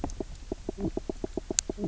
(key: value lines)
label: biophony, knock croak
recorder: SoundTrap 300